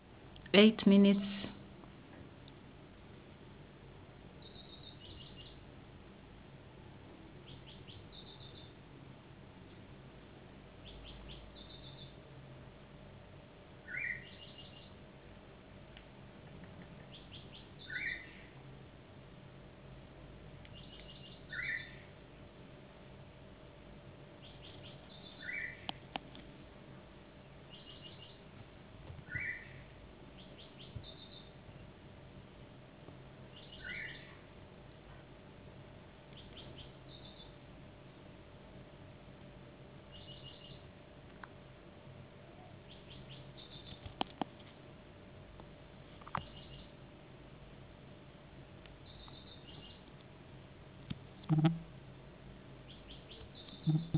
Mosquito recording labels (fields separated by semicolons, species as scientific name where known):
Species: no mosquito; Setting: insect culture